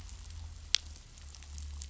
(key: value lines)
label: anthrophony, boat engine
recorder: SoundTrap 500